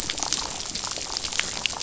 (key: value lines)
label: biophony, damselfish
recorder: SoundTrap 500